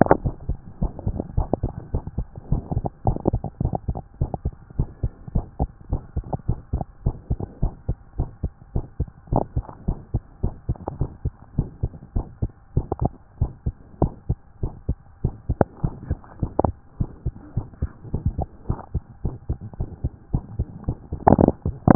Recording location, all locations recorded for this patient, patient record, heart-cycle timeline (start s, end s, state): mitral valve (MV)
aortic valve (AV)+pulmonary valve (PV)+tricuspid valve (TV)+mitral valve (MV)
#Age: Child
#Sex: Female
#Height: 119.0 cm
#Weight: 26.5 kg
#Pregnancy status: False
#Murmur: Present
#Murmur locations: mitral valve (MV)+pulmonary valve (PV)
#Most audible location: mitral valve (MV)
#Systolic murmur timing: Early-systolic
#Systolic murmur shape: Decrescendo
#Systolic murmur grading: I/VI
#Systolic murmur pitch: Low
#Systolic murmur quality: Blowing
#Diastolic murmur timing: nan
#Diastolic murmur shape: nan
#Diastolic murmur grading: nan
#Diastolic murmur pitch: nan
#Diastolic murmur quality: nan
#Outcome: Abnormal
#Campaign: 2014 screening campaign
0.00	4.44	unannotated
4.44	4.54	S2
4.54	4.78	diastole
4.78	4.88	S1
4.88	5.02	systole
5.02	5.12	S2
5.12	5.34	diastole
5.34	5.46	S1
5.46	5.60	systole
5.60	5.70	S2
5.70	5.90	diastole
5.90	6.02	S1
6.02	6.16	systole
6.16	6.24	S2
6.24	6.48	diastole
6.48	6.58	S1
6.58	6.72	systole
6.72	6.84	S2
6.84	7.04	diastole
7.04	7.16	S1
7.16	7.30	systole
7.30	7.38	S2
7.38	7.62	diastole
7.62	7.72	S1
7.72	7.88	systole
7.88	7.96	S2
7.96	8.18	diastole
8.18	8.30	S1
8.30	8.42	systole
8.42	8.52	S2
8.52	8.74	diastole
8.74	8.86	S1
8.86	8.98	systole
8.98	9.08	S2
9.08	9.32	diastole
9.32	9.44	S1
9.44	9.56	systole
9.56	9.64	S2
9.64	9.86	diastole
9.86	9.98	S1
9.98	10.12	systole
10.12	10.22	S2
10.22	10.42	diastole
10.42	10.54	S1
10.54	10.68	systole
10.68	10.78	S2
10.78	10.98	diastole
10.98	11.10	S1
11.10	11.24	systole
11.24	11.34	S2
11.34	11.56	diastole
11.56	11.68	S1
11.68	11.82	systole
11.82	11.92	S2
11.92	12.14	diastole
12.14	12.26	S1
12.26	12.42	systole
12.42	12.50	S2
12.50	12.76	diastole
12.76	12.86	S1
12.86	13.00	systole
13.00	13.12	S2
13.12	13.40	diastole
13.40	13.52	S1
13.52	13.66	systole
13.66	13.74	S2
13.74	14.00	diastole
14.00	14.12	S1
14.12	14.28	systole
14.28	14.38	S2
14.38	14.62	diastole
14.62	14.72	S1
14.72	14.88	systole
14.88	14.96	S2
14.96	15.22	diastole
15.22	15.34	S1
15.34	15.48	systole
15.48	15.58	S2
15.58	15.82	diastole
15.82	15.94	S1
15.94	16.08	systole
16.08	16.18	S2
16.18	16.40	diastole
16.40	16.52	S1
16.52	16.64	systole
16.64	16.74	S2
16.74	17.00	diastole
17.00	17.10	S1
17.10	17.24	systole
17.24	17.34	S2
17.34	17.56	diastole
17.56	17.66	S1
17.66	17.82	systole
17.82	17.90	S2
17.90	18.14	diastole
18.14	18.24	S1
18.24	18.38	systole
18.38	18.48	S2
18.48	18.68	diastole
18.68	18.78	S1
18.78	18.94	systole
18.94	19.02	S2
19.02	19.24	diastole
19.24	19.36	S1
19.36	19.48	systole
19.48	19.58	S2
19.58	19.80	diastole
19.80	19.90	S1
19.90	20.02	systole
20.02	20.12	S2
20.12	20.34	diastole
20.34	20.44	S1
20.44	20.58	systole
20.58	20.68	S2
20.68	20.88	diastole
20.88	20.98	S1
20.98	21.06	systole
21.06	21.95	unannotated